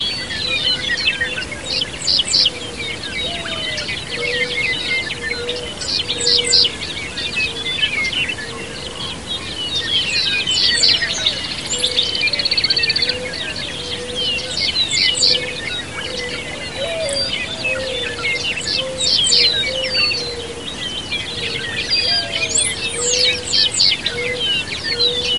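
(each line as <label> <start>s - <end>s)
Various birds chirping repeatedly, creating a peaceful outdoor ambiance. 0.1s - 25.4s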